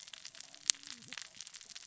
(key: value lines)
label: biophony, cascading saw
recorder: SoundTrap 600 or HydroMoth